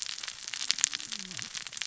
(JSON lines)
{"label": "biophony, cascading saw", "recorder": "SoundTrap 600 or HydroMoth"}